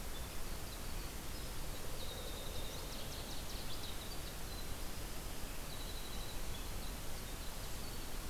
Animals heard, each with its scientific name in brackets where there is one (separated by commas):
Northern Waterthrush (Parkesia noveboracensis), Winter Wren (Troglodytes hiemalis)